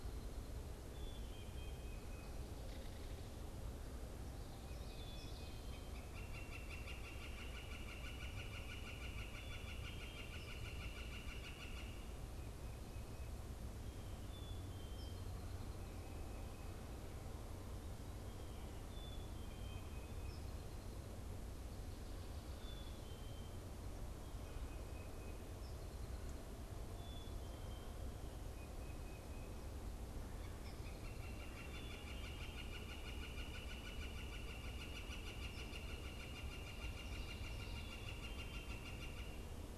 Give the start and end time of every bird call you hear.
0.0s-23.9s: Black-capped Chickadee (Poecile atricapillus)
5.0s-12.5s: Northern Flicker (Colaptes auratus)
19.6s-20.7s: Tufted Titmouse (Baeolophus bicolor)
24.5s-25.4s: Tufted Titmouse (Baeolophus bicolor)
27.0s-28.1s: Black-capped Chickadee (Poecile atricapillus)
28.5s-29.9s: Tufted Titmouse (Baeolophus bicolor)
30.6s-39.8s: Northern Flicker (Colaptes auratus)

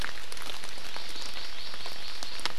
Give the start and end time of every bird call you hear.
0.7s-2.5s: Hawaii Amakihi (Chlorodrepanis virens)

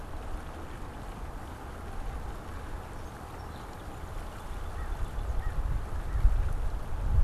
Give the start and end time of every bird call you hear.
2.8s-5.6s: Song Sparrow (Melospiza melodia)
4.6s-6.5s: American Crow (Corvus brachyrhynchos)

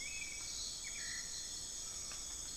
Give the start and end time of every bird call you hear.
0.0s-2.3s: Black-billed Thrush (Turdus ignobilis)
0.0s-2.6s: Buckley's Forest-Falcon (Micrastur buckleyi)

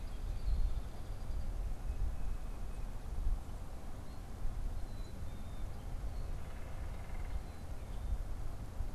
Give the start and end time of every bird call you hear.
3.7s-8.9s: Black-capped Chickadee (Poecile atricapillus)
6.0s-7.8s: unidentified bird

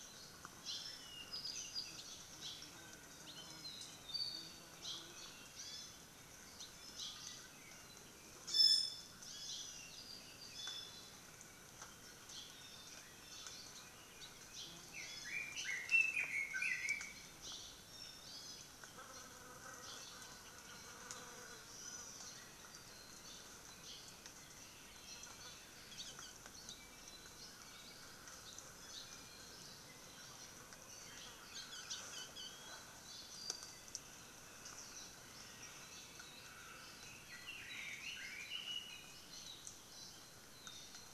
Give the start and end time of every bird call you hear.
0.6s-0.9s: Hawaii Creeper (Loxops mana)
0.9s-2.1s: Apapane (Himatione sanguinea)
2.3s-2.6s: Hawaii Creeper (Loxops mana)
3.5s-4.0s: Apapane (Himatione sanguinea)
4.7s-5.1s: Hawaii Creeper (Loxops mana)
5.4s-6.1s: Iiwi (Drepanis coccinea)
6.9s-7.2s: Hawaii Creeper (Loxops mana)
8.4s-9.7s: Iiwi (Drepanis coccinea)
10.5s-11.3s: Iiwi (Drepanis coccinea)
14.8s-17.3s: Red-billed Leiothrix (Leiothrix lutea)
16.4s-17.0s: Iiwi (Drepanis coccinea)
17.8s-18.8s: Iiwi (Drepanis coccinea)
21.6s-22.2s: Hawaii Amakihi (Chlorodrepanis virens)
25.8s-26.9s: Hawaii Akepa (Loxops coccineus)
31.4s-32.5s: Hawaii Akepa (Loxops coccineus)
37.2s-39.2s: Red-billed Leiothrix (Leiothrix lutea)

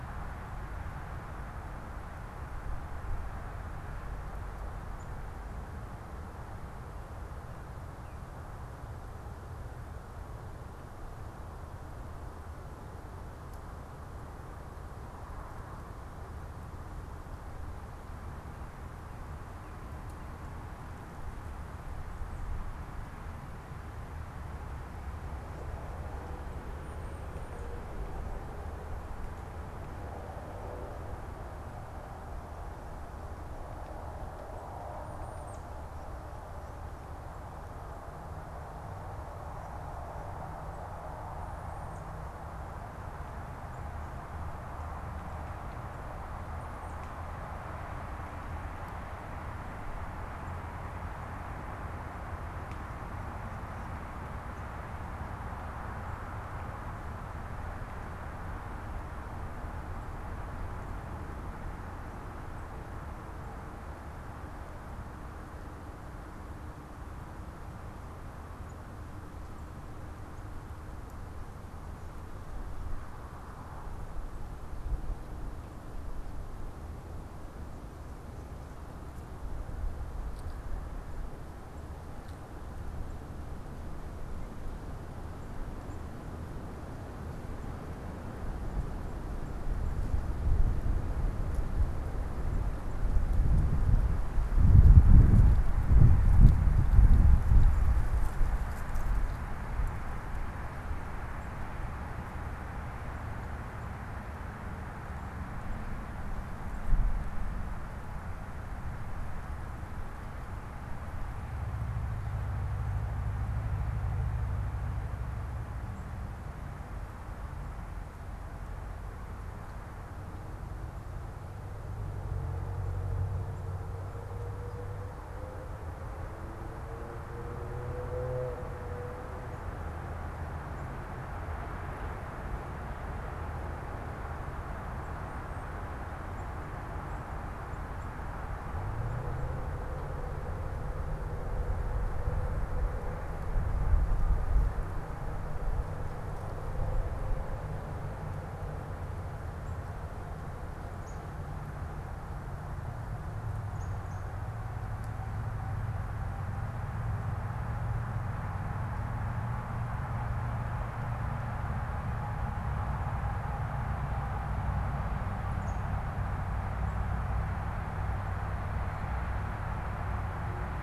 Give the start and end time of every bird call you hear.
34.8s-35.6s: Tufted Titmouse (Baeolophus bicolor)
149.4s-154.4s: unidentified bird
165.4s-166.1s: unidentified bird

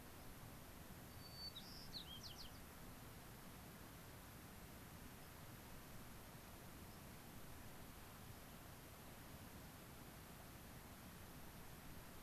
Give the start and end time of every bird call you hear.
1.1s-2.6s: White-crowned Sparrow (Zonotrichia leucophrys)
5.2s-5.3s: White-crowned Sparrow (Zonotrichia leucophrys)
6.8s-7.0s: White-crowned Sparrow (Zonotrichia leucophrys)
8.2s-8.4s: White-crowned Sparrow (Zonotrichia leucophrys)

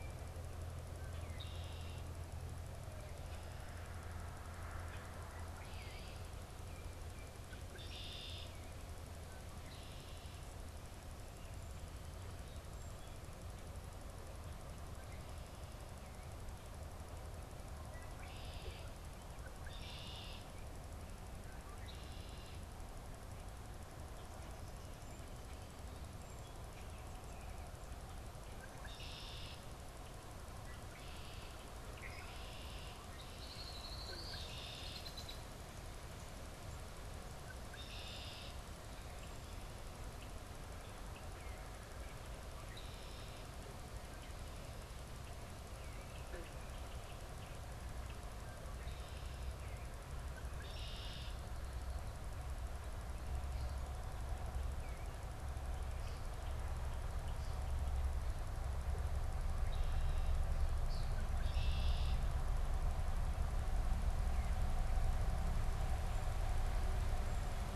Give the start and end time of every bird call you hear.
0.9s-2.3s: Red-winged Blackbird (Agelaius phoeniceus)
1.2s-1.5s: Eastern Bluebird (Sialia sialis)
5.1s-10.5s: Red-winged Blackbird (Agelaius phoeniceus)
5.7s-6.1s: Eastern Bluebird (Sialia sialis)
17.7s-22.7s: Red-winged Blackbird (Agelaius phoeniceus)
25.6s-27.7s: Song Sparrow (Melospiza melodia)
28.6s-35.7s: Red-winged Blackbird (Agelaius phoeniceus)
37.5s-38.7s: Red-winged Blackbird (Agelaius phoeniceus)
42.4s-43.8s: Red-winged Blackbird (Agelaius phoeniceus)
45.7s-46.2s: Eastern Bluebird (Sialia sialis)
46.3s-49.8s: Red-winged Blackbird (Agelaius phoeniceus)
50.2s-51.4s: Red-winged Blackbird (Agelaius phoeniceus)
60.8s-62.4s: Red-winged Blackbird (Agelaius phoeniceus)

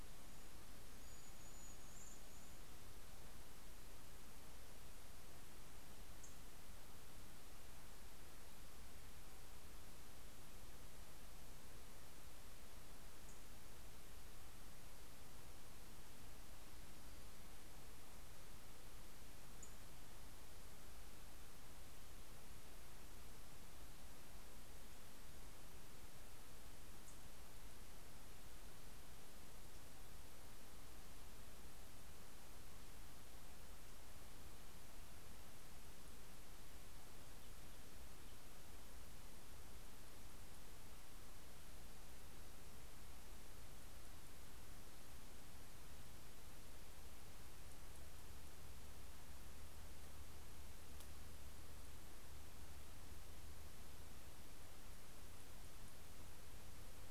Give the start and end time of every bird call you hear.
0.0s-3.3s: American Robin (Turdus migratorius)
5.6s-7.1s: Townsend's Warbler (Setophaga townsendi)

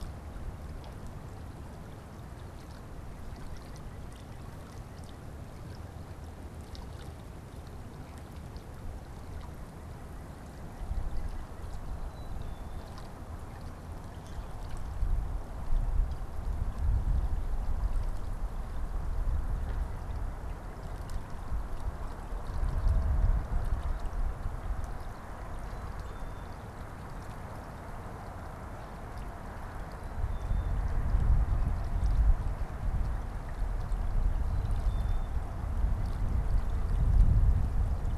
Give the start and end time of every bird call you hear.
3.3s-5.3s: White-breasted Nuthatch (Sitta carolinensis)
9.1s-11.7s: White-breasted Nuthatch (Sitta carolinensis)
11.7s-13.0s: Black-capped Chickadee (Poecile atricapillus)
25.4s-26.7s: Black-capped Chickadee (Poecile atricapillus)
29.9s-30.9s: Black-capped Chickadee (Poecile atricapillus)
34.2s-35.5s: Black-capped Chickadee (Poecile atricapillus)
35.4s-37.1s: White-breasted Nuthatch (Sitta carolinensis)

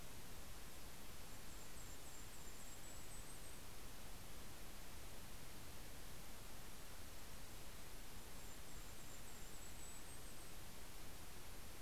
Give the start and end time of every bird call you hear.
0.0s-4.0s: Golden-crowned Kinglet (Regulus satrapa)
6.6s-11.8s: Golden-crowned Kinglet (Regulus satrapa)

